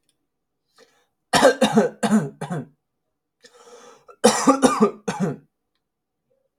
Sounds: Cough